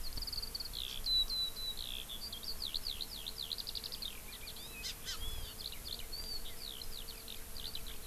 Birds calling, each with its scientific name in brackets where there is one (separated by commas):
Eurasian Skylark (Alauda arvensis), Hawaii Amakihi (Chlorodrepanis virens)